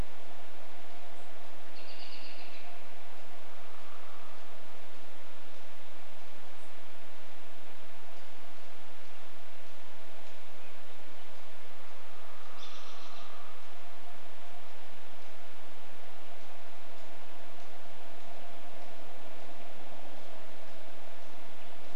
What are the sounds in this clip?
American Robin call, unidentified bird chip note, woodpecker drumming